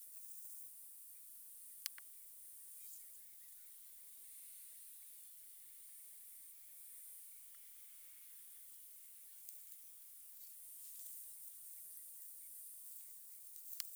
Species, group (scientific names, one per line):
Rhacocleis germanica
Orthoptera